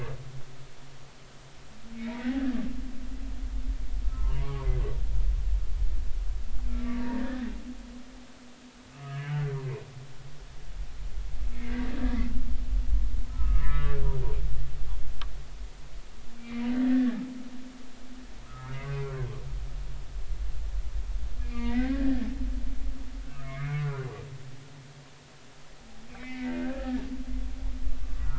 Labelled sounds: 2.0	2.4	humpback whale, 1.7 to 2.4 kHz
4.0	4.7	humpback whale, 0.80 to 1.4 kHz
6.6	7.5	humpback whale, 0.90 to 2.4 kHz
8.9	9.5	humpback whale, 1.2 to 3.0 kHz
13.3	14.0	humpback whale, 0.96 to 2.1 kHz
16.4	17.2	humpback whale, 1.6 to 2.4 kHz
18.5	18.8	humpback whale, 1.2 to 1.4 kHz
19.0	19.4	humpback whale, 0.99 to 1.7 kHz
21.4	22.3	humpback whale, 1.5 to 2.6 kHz
23.4	24.1	humpback whale, 1.0 to 2.4 kHz
26.1	27.0	humpback whale, 1.2 to 2.6 kHz

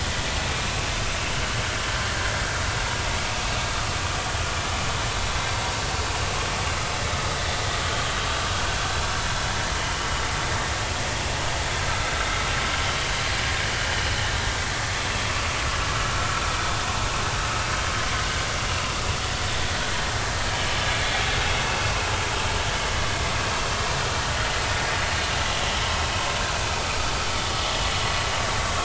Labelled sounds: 7.3	7.6	vessel noise, 1.9 to 2.0 kHz
16.1	16.4	vessel noise, 1.2 to 1.4 kHz

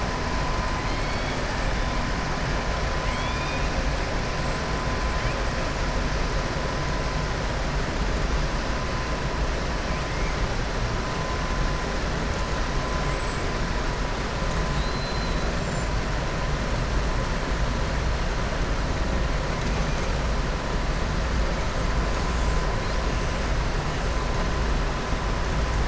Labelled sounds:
0.8	1.4	killer whale, southern resident, 2.2 to 4.5 kHz
3.0	3.7	killer whale, southern resident, 2.1 to 4.4 kHz
14.7	15.4	killer whale, southern resident, 3.5 to 4.8 kHz

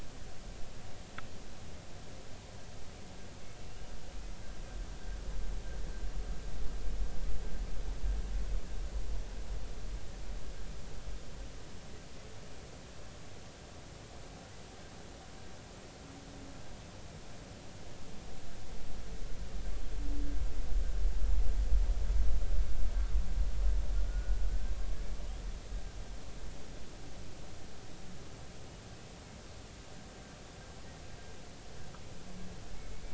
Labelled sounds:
3.7	3.9	humpback whale, 2.7 to 3.0 kHz
24.0	24.4	humpback whale, 1.4 to 1.5 kHz

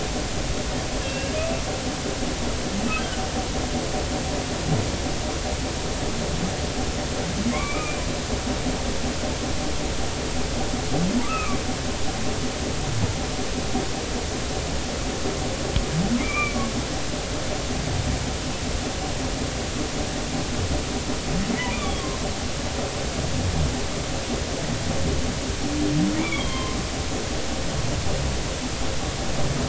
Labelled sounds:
1.0	1.4	humpback whale, 2.6 to 2.8 kHz
8.5	9.0	humpback whale, 1.0 to 2.5 kHz
11.2	11.6	humpback whale, 1.1 to 2.8 kHz
16.2	16.7	humpback whale, 1.1 to 2.5 kHz
21.7	22.0	humpback whale, 2.2 to 3.6 kHz
26.2	26.8	humpback whale, 0.99 to 3.5 kHz

